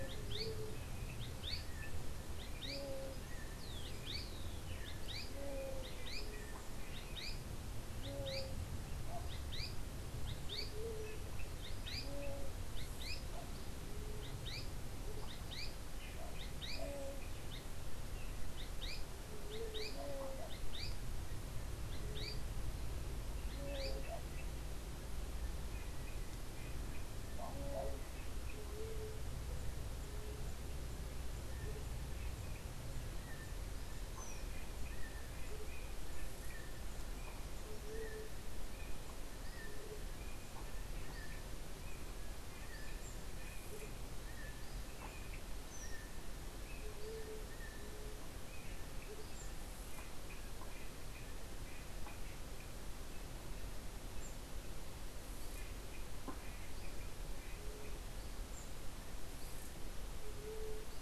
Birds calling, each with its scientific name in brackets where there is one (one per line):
Azara's Spinetail (Synallaxis azarae)
Yellow-backed Oriole (Icterus chrysater)
White-tipped Dove (Leptotila verreauxi)
unidentified bird